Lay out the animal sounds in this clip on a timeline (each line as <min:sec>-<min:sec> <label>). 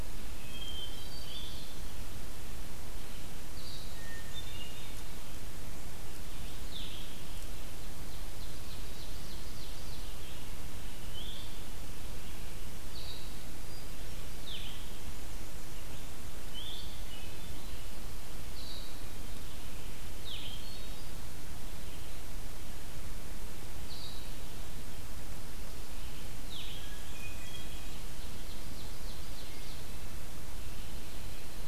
0:00.0-0:15.3 Blue-headed Vireo (Vireo solitarius)
0:00.4-0:01.6 Hermit Thrush (Catharus guttatus)
0:03.9-0:05.3 Hermit Thrush (Catharus guttatus)
0:07.4-0:10.4 Ovenbird (Seiurus aurocapilla)
0:16.2-0:31.7 Blue-headed Vireo (Vireo solitarius)
0:20.2-0:21.3 Hermit Thrush (Catharus guttatus)
0:26.8-0:27.9 Hermit Thrush (Catharus guttatus)
0:27.5-0:30.1 Ovenbird (Seiurus aurocapilla)